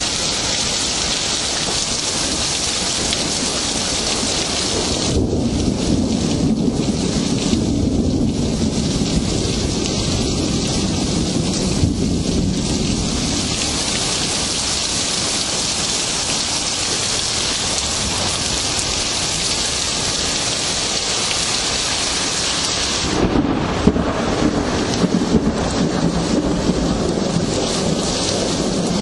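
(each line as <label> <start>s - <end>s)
Heavy rain falling continuously. 0.0s - 29.0s
Heavy wind is blowing in the distance. 0.0s - 29.0s
A loud rumble of thunder in the distance. 3.1s - 13.6s
A loud rumble of thunder is heard in the distance. 23.1s - 29.0s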